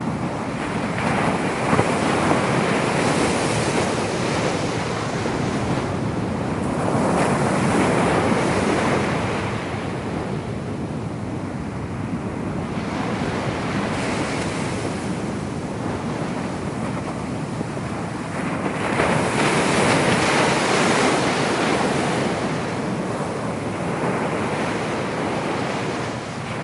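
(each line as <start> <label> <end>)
0.0 Rhythmic sound of waves along the coastline gradually fading into the distance. 9.9
9.8 A muffled, echoing wind sound. 18.4
18.4 Loud waves crashing along the coastline. 23.0
23.0 A muffled and echoing wind sound. 26.6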